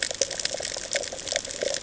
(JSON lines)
{"label": "ambient", "recorder": "HydroMoth"}